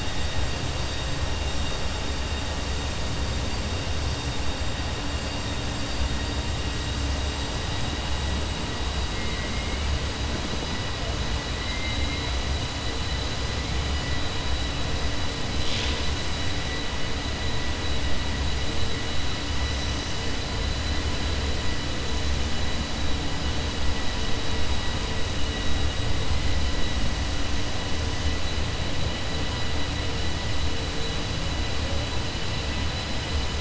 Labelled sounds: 9.1	9.8	killer whale, 1.9 to 3.1 kHz

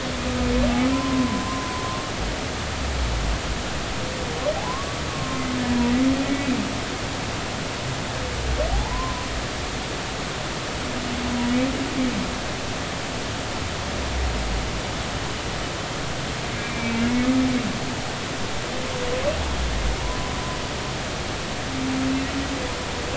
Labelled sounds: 0.9	1.7	humpback whale, 0.96 to 1.1 kHz
4.6	5.4	humpback whale, 0.80 to 1.2 kHz
8.7	9.3	humpback whale, 0.80 to 1.1 kHz
16.6	17.0	humpback whale, 2.2 to 2.4 kHz

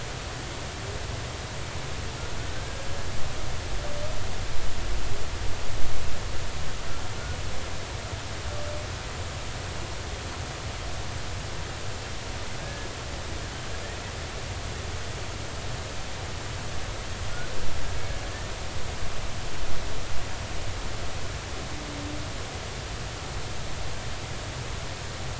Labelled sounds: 2.5	2.8	humpback whale, 1.5 to 1.7 kHz
12.6	12.9	humpback whale, 1.6 to 1.8 kHz

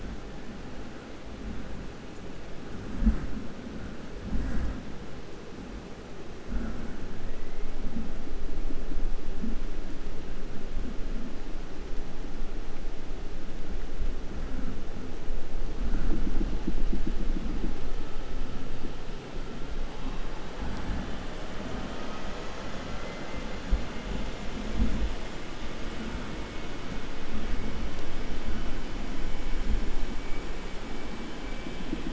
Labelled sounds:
6.8	7.9	killer whale, 0.72 to 3.6 kHz

